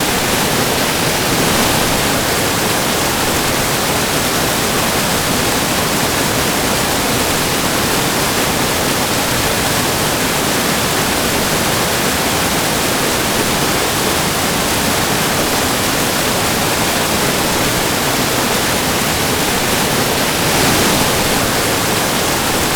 Is it silent at the beginning?
no